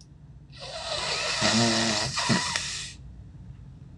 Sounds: Sniff